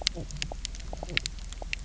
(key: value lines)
label: biophony, knock croak
recorder: SoundTrap 300